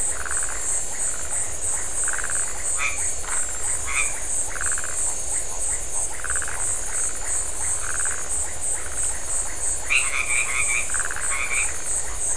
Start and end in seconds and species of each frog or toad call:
0.0	12.3	Phyllomedusa distincta
2.8	4.3	Boana albomarginata
9.6	12.3	Boana albomarginata

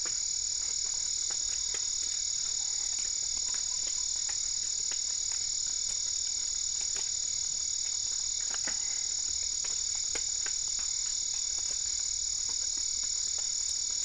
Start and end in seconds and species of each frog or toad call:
3.4	4.6	Boana lundii

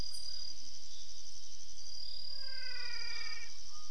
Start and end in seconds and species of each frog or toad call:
2.1	3.5	Physalaemus albonotatus

